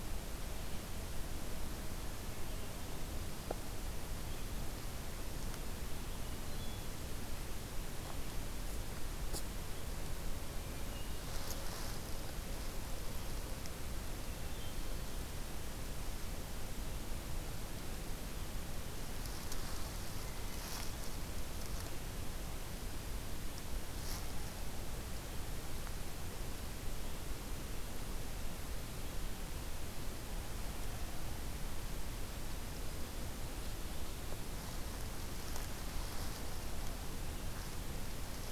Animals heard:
forest ambience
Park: Hubbard Brook Experimental Forest